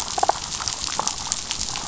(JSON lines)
{"label": "biophony, damselfish", "recorder": "SoundTrap 500"}